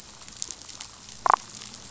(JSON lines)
{"label": "biophony, damselfish", "recorder": "SoundTrap 500"}